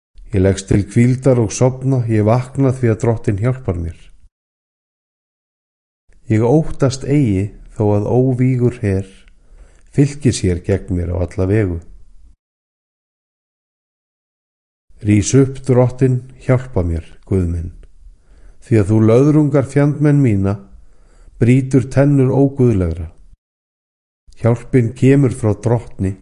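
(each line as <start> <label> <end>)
0.3 A man is reading from the Bible with a gentle tune. 4.4
6.0 A man is reading from the Bible with a gentle tune. 12.5
14.8 A man is reading from the Bible with a gentle tune. 23.6
24.3 A man is reading from the Bible with a gentle tune. 26.2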